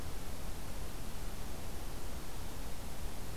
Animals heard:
forest ambience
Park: Acadia National Park